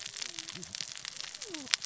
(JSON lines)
{"label": "biophony, cascading saw", "recorder": "SoundTrap 600 or HydroMoth"}